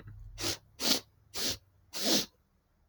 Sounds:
Sniff